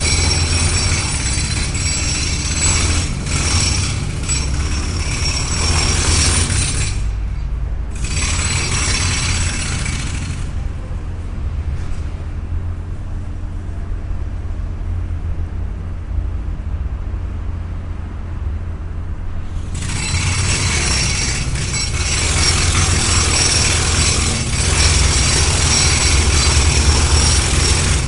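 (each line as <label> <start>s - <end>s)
Someone is drilling outdoors, and the sound of the drill varies in intensity. 0.0s - 7.3s
Outdoor noise. 7.3s - 8.0s
An outdoor drill sound increases and decreases in strength. 8.0s - 10.6s
Outdoor noise. 10.5s - 19.7s
An outdoor drill sound increases and decreases in strength. 19.7s - 28.1s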